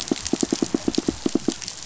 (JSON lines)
{"label": "biophony, pulse", "recorder": "SoundTrap 500"}